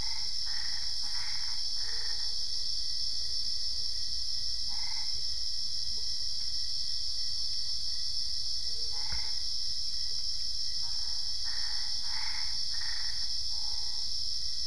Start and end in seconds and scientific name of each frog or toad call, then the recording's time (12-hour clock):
0.0	2.4	Boana albopunctata
4.6	5.3	Boana albopunctata
8.8	9.6	Boana albopunctata
10.8	14.1	Boana albopunctata
10:15pm